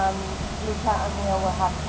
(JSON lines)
{"label": "ambient", "recorder": "HydroMoth"}